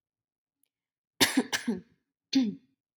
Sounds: Throat clearing